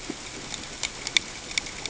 {"label": "ambient", "recorder": "HydroMoth"}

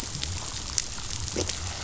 {"label": "biophony", "recorder": "SoundTrap 500"}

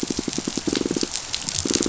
{"label": "biophony, pulse", "recorder": "SoundTrap 500"}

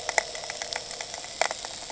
{"label": "anthrophony, boat engine", "recorder": "HydroMoth"}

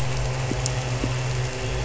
{"label": "anthrophony, boat engine", "recorder": "SoundTrap 300"}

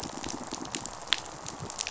{"label": "biophony, pulse", "recorder": "SoundTrap 500"}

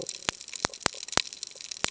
{"label": "ambient", "recorder": "HydroMoth"}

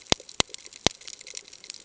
{"label": "ambient", "recorder": "HydroMoth"}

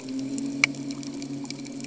{"label": "anthrophony, boat engine", "recorder": "HydroMoth"}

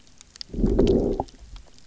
{"label": "biophony, low growl", "recorder": "SoundTrap 300"}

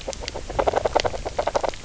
{"label": "biophony, knock croak", "recorder": "SoundTrap 300"}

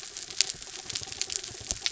{"label": "anthrophony, mechanical", "recorder": "SoundTrap 300"}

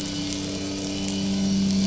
{"label": "anthrophony, boat engine", "recorder": "SoundTrap 500"}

